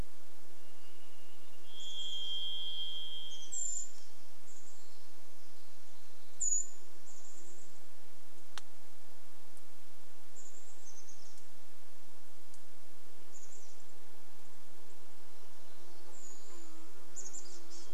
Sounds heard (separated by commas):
Varied Thrush song, Chestnut-backed Chickadee call, insect buzz, Brown Creeper call